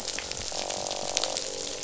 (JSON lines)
{"label": "biophony, croak", "recorder": "SoundTrap 500"}